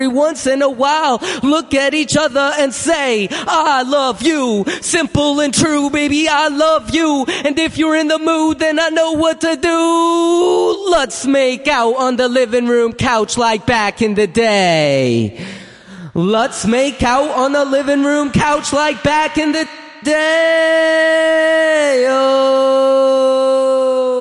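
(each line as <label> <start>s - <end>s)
A male voice performs raw vocals rhythmically and expressively, blending rapping, poetry, and spoken word with a playful and soulful tone. 0.0s - 24.2s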